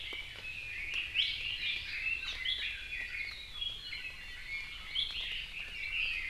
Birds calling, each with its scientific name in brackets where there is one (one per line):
Red-billed Leiothrix (Leiothrix lutea)
Iiwi (Drepanis coccinea)